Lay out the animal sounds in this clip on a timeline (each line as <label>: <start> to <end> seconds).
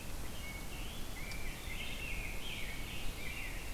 Rose-breasted Grosbeak (Pheucticus ludovicianus): 0.0 to 3.5 seconds